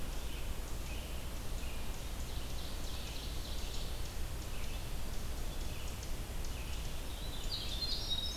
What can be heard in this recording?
Red-eyed Vireo, Ovenbird, Winter Wren